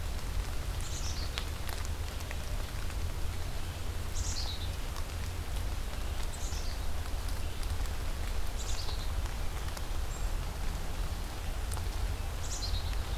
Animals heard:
Black-capped Chickadee (Poecile atricapillus)

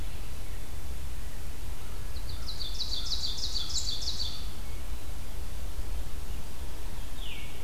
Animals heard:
Veery (Catharus fuscescens), Ovenbird (Seiurus aurocapilla)

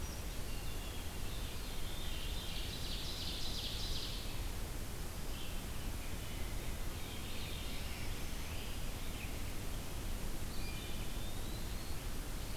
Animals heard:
Black-throated Green Warbler (Setophaga virens), Red-eyed Vireo (Vireo olivaceus), Ovenbird (Seiurus aurocapilla), Wood Thrush (Hylocichla mustelina), Eastern Wood-Pewee (Contopus virens), Veery (Catharus fuscescens)

